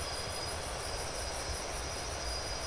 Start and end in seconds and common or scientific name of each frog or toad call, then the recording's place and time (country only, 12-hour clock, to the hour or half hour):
none
Brazil, 4am